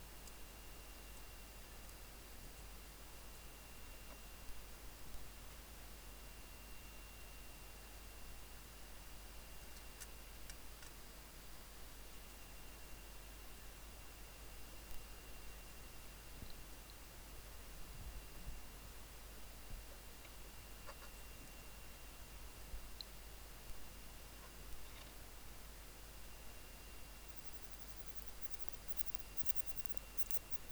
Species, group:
Odontura stenoxypha, Orthoptera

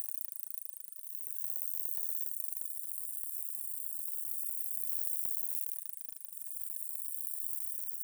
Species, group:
Conocephalus dorsalis, Orthoptera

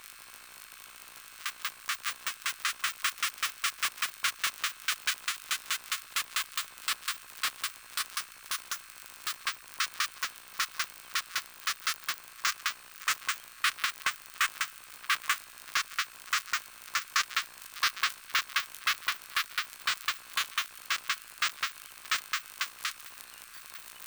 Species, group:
Poecilimon mytilenensis, Orthoptera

